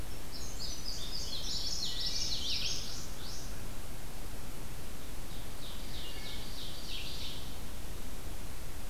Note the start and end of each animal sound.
0.0s-3.5s: Indigo Bunting (Passerina cyanea)
1.3s-2.8s: Common Yellowthroat (Geothlypis trichas)
1.7s-2.5s: Wood Thrush (Hylocichla mustelina)
5.1s-7.7s: Ovenbird (Seiurus aurocapilla)
6.0s-6.5s: Wood Thrush (Hylocichla mustelina)
6.9s-8.9s: Red-eyed Vireo (Vireo olivaceus)

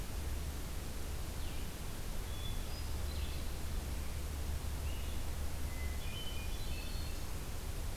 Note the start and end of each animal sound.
1.3s-8.0s: Blue-headed Vireo (Vireo solitarius)
2.3s-3.3s: Black-throated Green Warbler (Setophaga virens)
5.6s-7.3s: Hermit Thrush (Catharus guttatus)

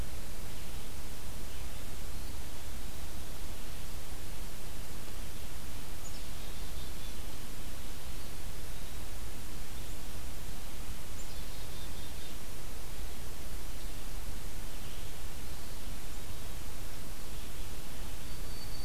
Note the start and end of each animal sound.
0.0s-18.8s: Red-eyed Vireo (Vireo olivaceus)
6.0s-7.3s: Black-capped Chickadee (Poecile atricapillus)
8.0s-9.1s: Eastern Wood-Pewee (Contopus virens)
11.1s-12.5s: Black-capped Chickadee (Poecile atricapillus)
15.4s-16.6s: Eastern Wood-Pewee (Contopus virens)
17.9s-18.8s: Black-throated Green Warbler (Setophaga virens)

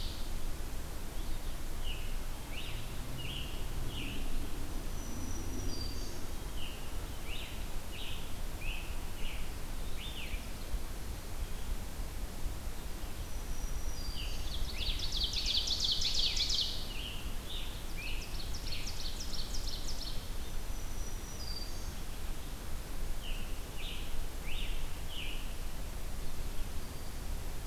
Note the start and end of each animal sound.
1.8s-4.4s: Scarlet Tanager (Piranga olivacea)
4.6s-6.4s: Black-throated Green Warbler (Setophaga virens)
6.3s-10.5s: Scarlet Tanager (Piranga olivacea)
13.1s-14.9s: Black-throated Green Warbler (Setophaga virens)
14.0s-18.7s: Scarlet Tanager (Piranga olivacea)
14.4s-17.1s: Ovenbird (Seiurus aurocapilla)
17.7s-20.5s: Ovenbird (Seiurus aurocapilla)
20.5s-22.3s: Black-throated Green Warbler (Setophaga virens)
22.9s-25.6s: Scarlet Tanager (Piranga olivacea)

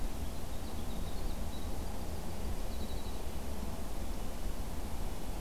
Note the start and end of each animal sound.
0.0s-3.3s: Winter Wren (Troglodytes hiemalis)

